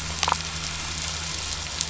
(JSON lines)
{"label": "biophony, damselfish", "recorder": "SoundTrap 500"}